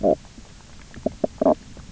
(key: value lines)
label: biophony, knock croak
recorder: SoundTrap 300